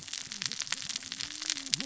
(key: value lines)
label: biophony, cascading saw
recorder: SoundTrap 600 or HydroMoth